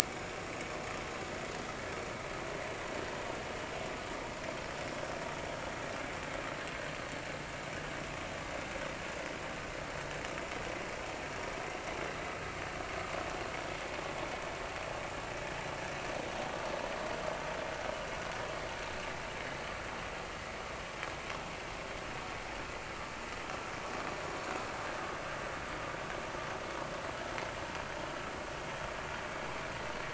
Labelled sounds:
0.0	0.3	vessel noise, 2.2 to 2.3 kHz

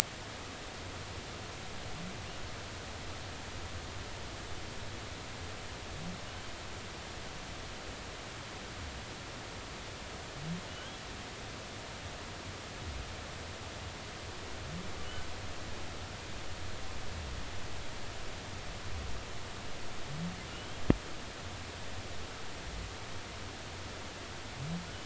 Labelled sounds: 10.7	11.0	humpback whale, 2.8 to 3.4 kHz
20.5	20.8	humpback whale, 2.8 to 3.3 kHz

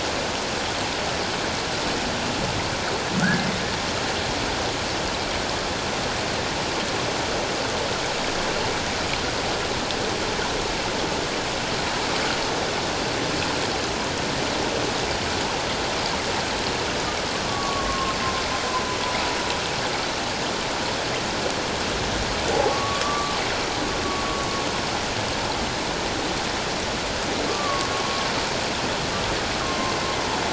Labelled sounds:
3.2	3.5	humpback whale, 1.3 to 1.8 kHz
17.4	18.2	humpback whale, 1.0 to 1.2 kHz
22.5	23.4	humpback whale, 0.78 to 1.2 kHz
27.5	27.9	humpback whale, 1.0 to 1.2 kHz
29.6	29.9	humpback whale, 1.0 to 1.1 kHz

